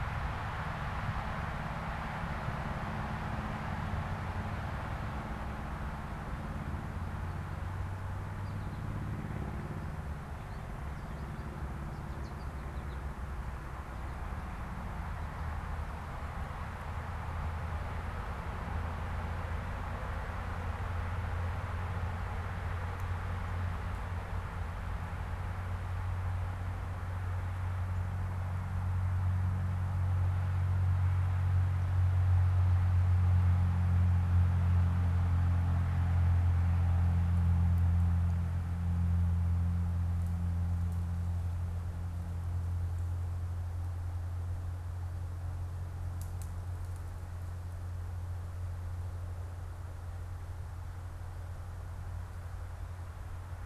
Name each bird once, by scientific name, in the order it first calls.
Spinus tristis